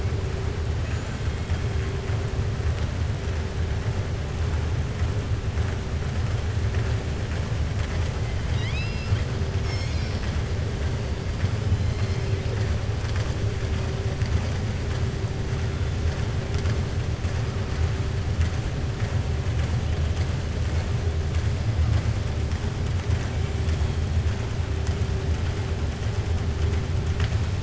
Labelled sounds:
8.4	9.3	killer whale, southern resident, 1.4 to 5.7 kHz

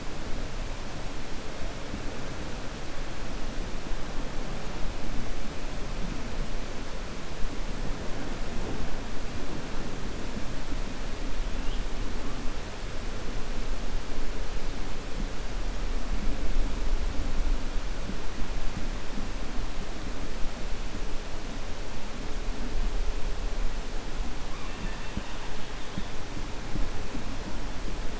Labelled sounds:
24.5	25.4	killer whale, 1.1 to 3.7 kHz

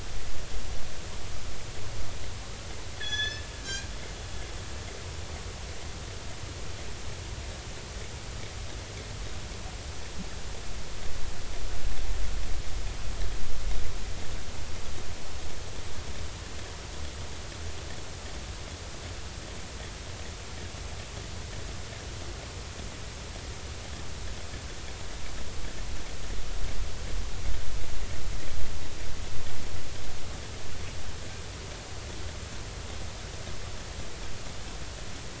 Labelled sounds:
3.0	3.9	killer whale, northern resident, G clan, call N24ii, 1.6 to 6.7 kHz

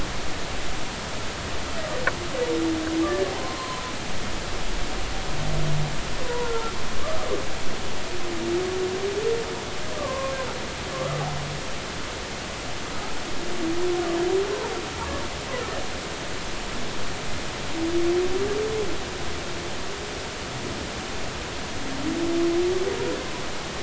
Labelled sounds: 3.3	3.9	humpback whale, 0.80 to 4.2 kHz
6.2	7.3	humpback whale, 0.90 to 1.4 kHz
10.0	10.3	humpback whale, 0.96 to 1.2 kHz

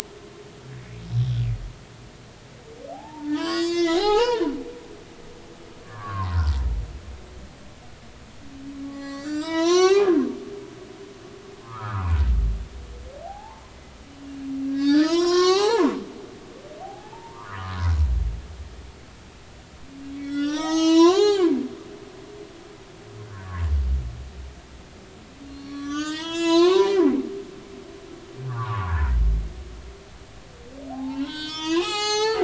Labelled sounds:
1.2	1.4	humpback whale, 3.1 to 3.6 kHz
2.9	4.5	humpback whale, 0.80 to 8.0 kHz
5.8	6.6	humpback whale, 0.90 to 1.8 kHz
8.8	10.1	humpback whale, 0.80 to 8.0 kHz
11.6	12.1	humpback whale, 0.86 to 1.6 kHz
13.2	13.6	humpback whale, 0.80 to 1.1 kHz
14.7	15.9	humpback whale, 0.80 to 7.0 kHz
16.8	17.8	humpback whale, 0.80 to 1.8 kHz
20.2	21.5	humpback whale, 0.80 to 8.0 kHz
23.3	23.6	humpback whale, 1.5 to 1.8 kHz
25.5	27.3	humpback whale, 0.86 to 7.8 kHz
28.5	29.1	humpback whale, 0.80 to 1.8 kHz
30.9	32.4	humpback whale, 0.80 to 8.0 kHz

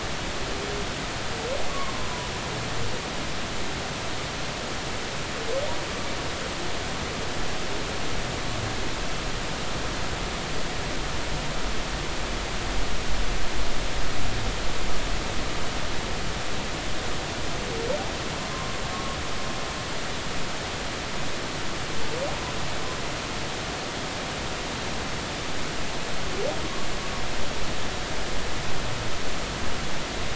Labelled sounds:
1.7	2.3	humpback whale, 0.93 to 1.2 kHz
18.4	19.2	humpback whale, 0.99 to 1.2 kHz

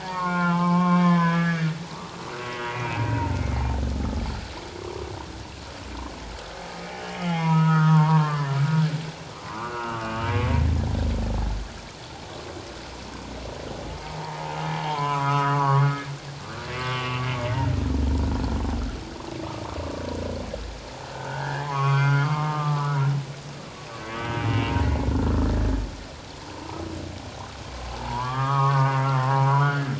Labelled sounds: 0.0	2.1	humpback whale, 0.81 to 3.3 kHz
2.4	3.6	humpback whale, 0.84 to 2.6 kHz
3.9	4.2	humpback whale, 1.2 to 1.3 kHz
6.9	8.6	humpback whale, 0.88 to 3.4 kHz
9.4	10.3	humpback whale, 0.91 to 3.0 kHz
14.2	15.9	humpback whale, 0.78 to 2.9 kHz
16.8	17.2	humpback whale, 1.1 to 3.1 kHz
21.1	23.0	humpback whale, 0.78 to 4.8 kHz
24.1	24.5	humpback whale, 1.5 to 3.2 kHz
27.9	29.9	humpback whale, 0.78 to 1.8 kHz

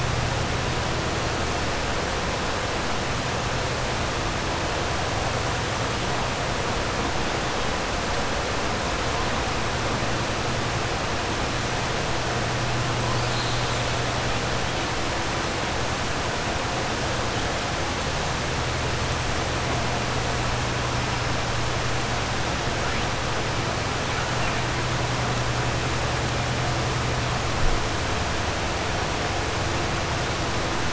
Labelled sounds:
13.1	13.7	killer whale, 3.2 to 4.9 kHz

